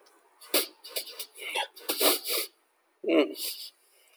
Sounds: Sigh